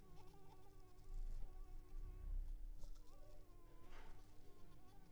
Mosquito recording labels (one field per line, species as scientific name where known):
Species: Anopheles coustani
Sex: female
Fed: unfed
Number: one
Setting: cup